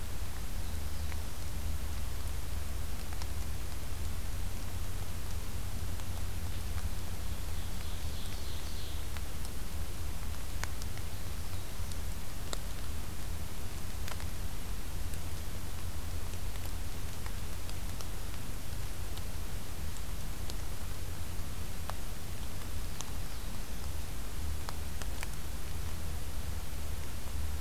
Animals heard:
Ovenbird (Seiurus aurocapilla), Black-throated Blue Warbler (Setophaga caerulescens)

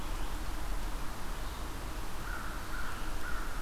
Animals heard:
American Crow (Corvus brachyrhynchos), Red-eyed Vireo (Vireo olivaceus)

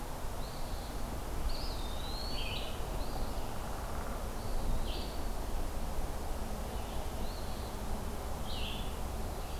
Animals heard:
Downy Woodpecker (Dryobates pubescens), Eastern Wood-Pewee (Contopus virens), Red-eyed Vireo (Vireo olivaceus), Eastern Phoebe (Sayornis phoebe)

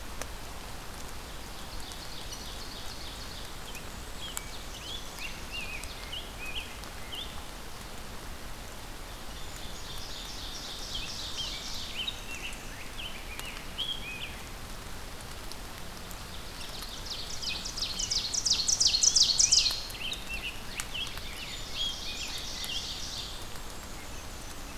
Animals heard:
Ovenbird (Seiurus aurocapilla), Black-and-white Warbler (Mniotilta varia), Rose-breasted Grosbeak (Pheucticus ludovicianus)

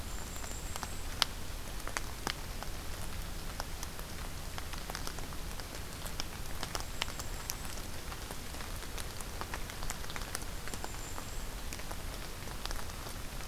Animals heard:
Golden-crowned Kinglet (Regulus satrapa)

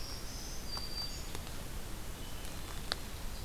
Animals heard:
Black-throated Green Warbler (Setophaga virens), Red-eyed Vireo (Vireo olivaceus), Hermit Thrush (Catharus guttatus)

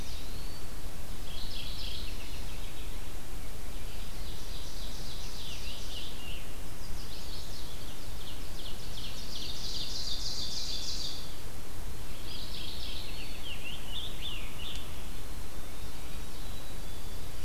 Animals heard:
Scarlet Tanager (Piranga olivacea), Ovenbird (Seiurus aurocapilla), Mourning Warbler (Geothlypis philadelphia), Chestnut-sided Warbler (Setophaga pensylvanica), Eastern Wood-Pewee (Contopus virens), Red-eyed Vireo (Vireo olivaceus), Black-capped Chickadee (Poecile atricapillus)

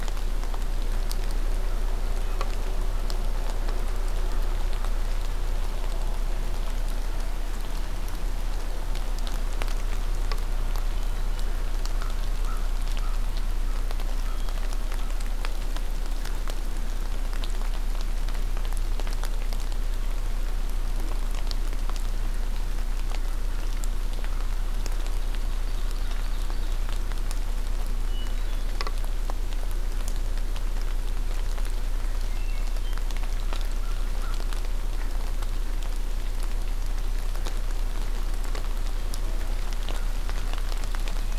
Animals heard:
Hermit Thrush (Catharus guttatus), Ovenbird (Seiurus aurocapilla), American Crow (Corvus brachyrhynchos)

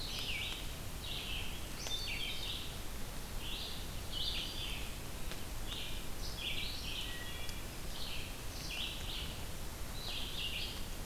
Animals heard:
Wood Thrush (Hylocichla mustelina), Red-eyed Vireo (Vireo olivaceus)

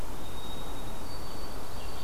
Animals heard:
White-throated Sparrow (Zonotrichia albicollis)

